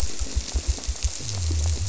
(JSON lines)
{"label": "biophony", "recorder": "SoundTrap 300"}